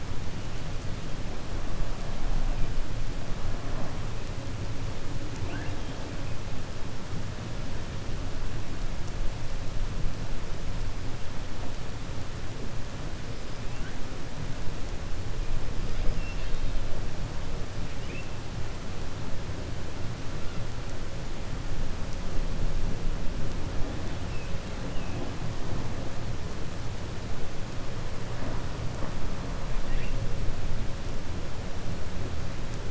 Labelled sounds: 16.1	16.8	killer whale, 1.8 to 5.9 kHz

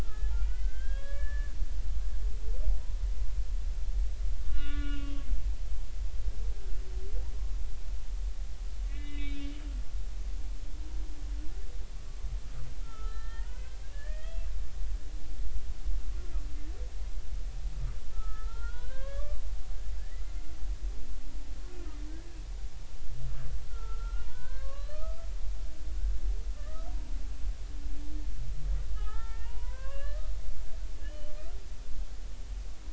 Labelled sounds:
0.0	1.5	humpback whale, 1.1 to 3.4 kHz
4.4	5.1	humpback whale, 1.1 to 3.8 kHz
8.9	9.5	humpback whale, 1.9 to 3.8 kHz
12.8	14.5	humpback whale, 0.90 to 4.1 kHz
16.2	16.5	humpback whale, 1.1 to 1.4 kHz
18.1	20.2	humpback whale, 0.86 to 3.3 kHz
22.1	22.4	humpback whale, 1.5 to 1.7 kHz
23.7	25.3	humpback whale, 0.93 to 4.4 kHz
26.6	27.2	humpback whale, 0.83 to 1.3 kHz
28.9	30.3	humpback whale, 0.80 to 3.1 kHz
31.0	31.3	humpback whale, 2.7 to 3.1 kHz

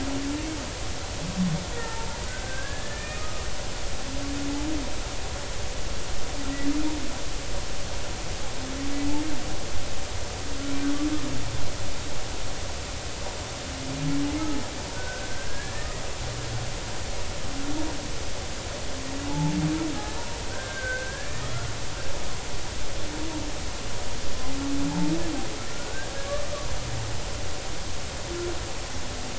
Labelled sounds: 1.7	3.2	humpback whale, 0.86 to 2.5 kHz
4.1	4.5	humpback whale, 1.2 to 1.3 kHz
14.9	16.0	humpback whale, 1.4 to 2.0 kHz
19.3	19.6	humpback whale, 0.80 to 0.99 kHz
20.5	21.4	humpback whale, 1.5 to 1.9 kHz
24.9	26.4	humpback whale, 0.80 to 1.8 kHz

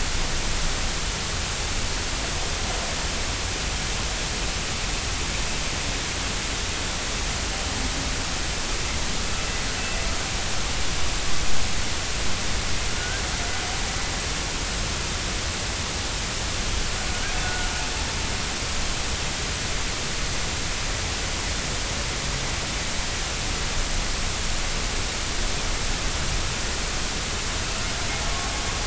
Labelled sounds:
12.9	13.2	humpback whale, 1.4 to 1.7 kHz
17.4	17.7	humpback whale, 1.3 to 1.5 kHz

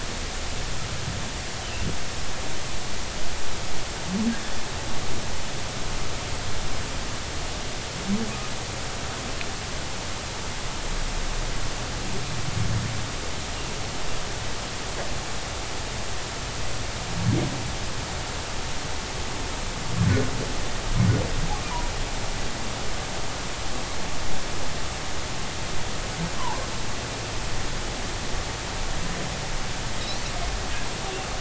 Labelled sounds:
26.4	26.7	humpback whale, 0.80 to 1.2 kHz

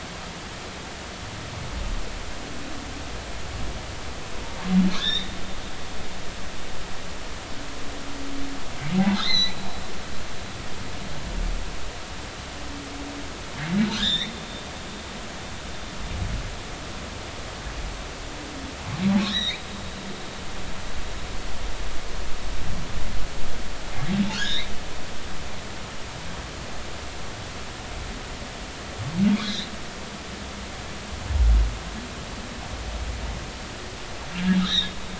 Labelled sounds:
4.9	5.3	humpback whale, 1.1 to 4.0 kHz
9.2	9.6	humpback whale, 1.8 to 6.2 kHz
13.9	14.3	humpback whale, 1.3 to 4.1 kHz
19.2	19.6	humpback whale, 1.6 to 4.4 kHz
24.3	24.7	humpback whale, 1.3 to 4.1 kHz
29.4	29.7	humpback whale, 3.2 to 4.2 kHz
34.6	34.9	humpback whale, 3.4 to 4.2 kHz

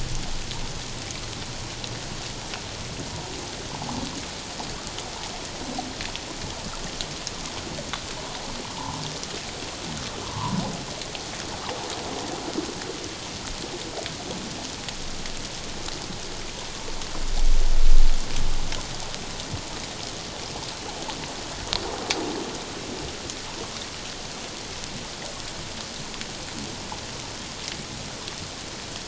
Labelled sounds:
10.2	10.6	humpback whale, 0.84 to 1.3 kHz

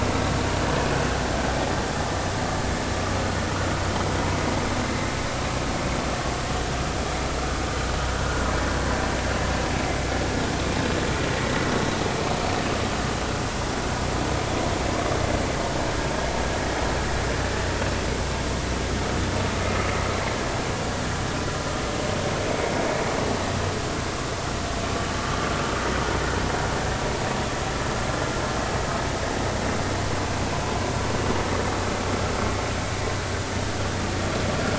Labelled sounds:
8.2	8.4	vessel noise, 1.4 to 1.5 kHz

